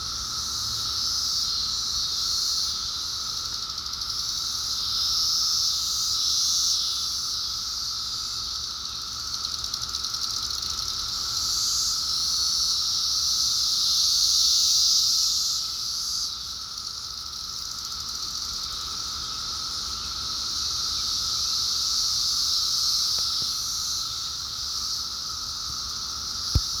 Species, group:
Magicicada septendecim, Cicadidae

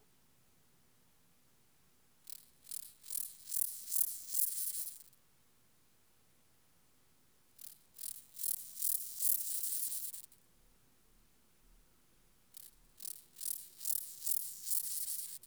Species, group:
Chorthippus dorsatus, Orthoptera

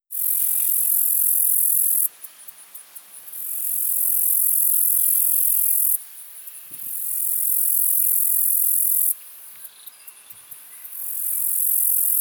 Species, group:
Orchelimum nigripes, Orthoptera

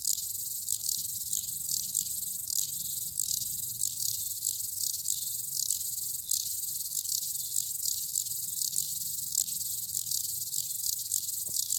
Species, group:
Stauroderus scalaris, Orthoptera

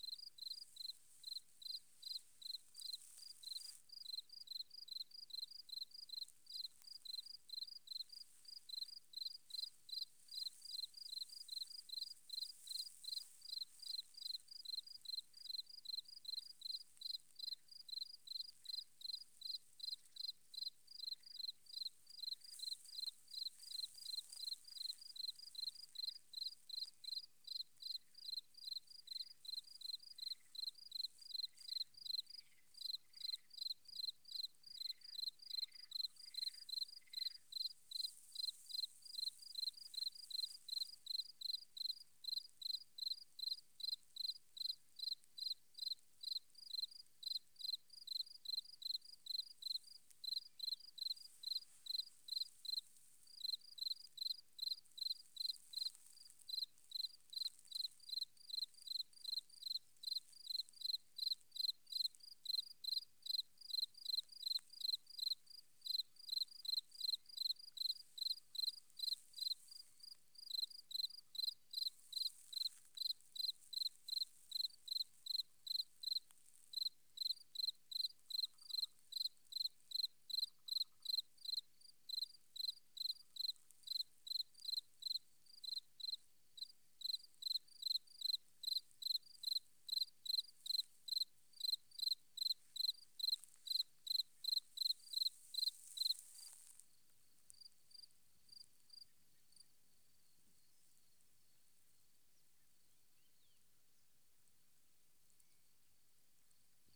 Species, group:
Gryllus campestris, Orthoptera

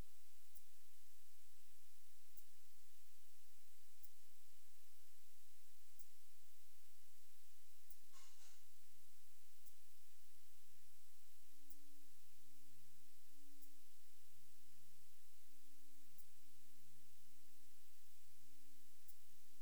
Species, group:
Yersinella raymondii, Orthoptera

